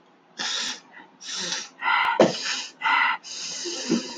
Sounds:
Sniff